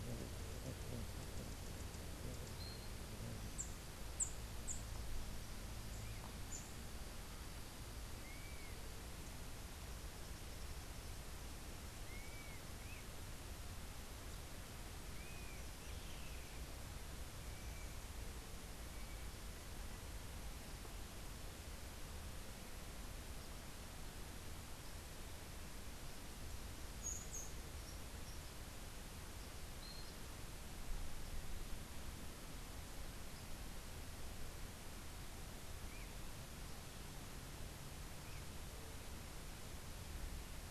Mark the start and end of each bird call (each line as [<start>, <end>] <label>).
[2.97, 6.97] Rufous-tailed Hummingbird (Amazilia tzacatl)
[8.17, 16.87] Dusky-capped Flycatcher (Myiarchus tuberculifer)
[29.67, 30.27] Yellow-crowned Euphonia (Euphonia luteicapilla)